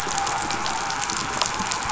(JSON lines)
{"label": "anthrophony, boat engine", "recorder": "SoundTrap 500"}